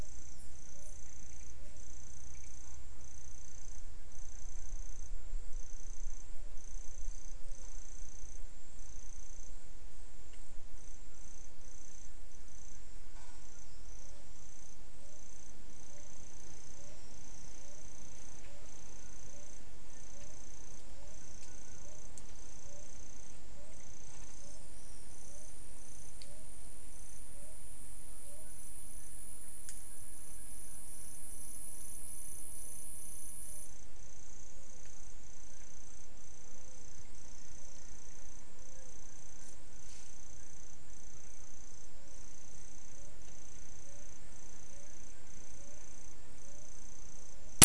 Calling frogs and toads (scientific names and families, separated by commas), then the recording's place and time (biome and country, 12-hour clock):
none
Cerrado, Brazil, 5:15pm